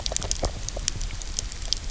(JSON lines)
{"label": "biophony, grazing", "recorder": "SoundTrap 300"}